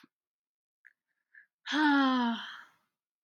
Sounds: Sigh